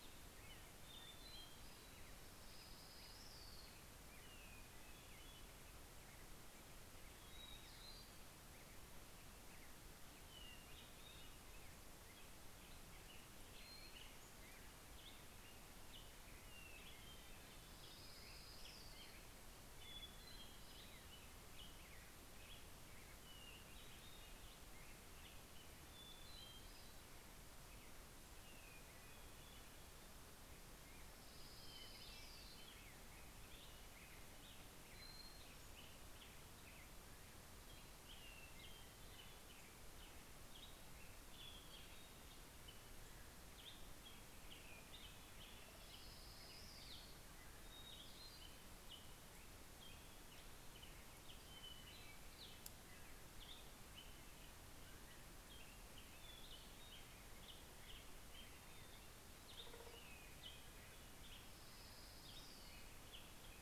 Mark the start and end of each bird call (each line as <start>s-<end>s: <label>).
0.0s-2.0s: Hermit Thrush (Catharus guttatus)
1.6s-4.3s: Orange-crowned Warbler (Leiothlypis celata)
4.1s-6.1s: Hermit Thrush (Catharus guttatus)
7.2s-8.5s: Hermit Thrush (Catharus guttatus)
9.6s-12.0s: Hermit Thrush (Catharus guttatus)
13.0s-15.0s: Hermit Thrush (Catharus guttatus)
16.2s-18.2s: Hermit Thrush (Catharus guttatus)
17.0s-19.8s: Orange-crowned Warbler (Leiothlypis celata)
19.4s-21.6s: Hermit Thrush (Catharus guttatus)
23.0s-24.8s: Hermit Thrush (Catharus guttatus)
25.6s-27.3s: Hermit Thrush (Catharus guttatus)
28.2s-30.4s: Hermit Thrush (Catharus guttatus)
30.4s-33.1s: Orange-crowned Warbler (Leiothlypis celata)
31.5s-33.6s: Hermit Thrush (Catharus guttatus)
32.1s-63.6s: Black-headed Grosbeak (Pheucticus melanocephalus)
35.0s-36.3s: Hermit Thrush (Catharus guttatus)
37.5s-39.4s: Hermit Thrush (Catharus guttatus)
43.9s-46.1s: Hermit Thrush (Catharus guttatus)
45.1s-47.5s: Orange-crowned Warbler (Leiothlypis celata)
47.4s-49.2s: Hermit Thrush (Catharus guttatus)
51.1s-52.8s: Hermit Thrush (Catharus guttatus)
55.6s-57.6s: Hermit Thrush (Catharus guttatus)
60.8s-63.4s: Orange-crowned Warbler (Leiothlypis celata)